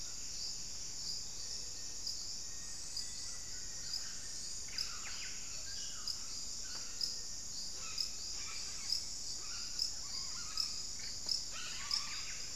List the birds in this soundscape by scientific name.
Crypturellus soui, Formicarius analis, Cantorchilus leucotis, Geotrygon montana, Orthopsittaca manilatus